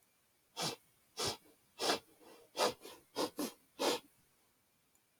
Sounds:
Sniff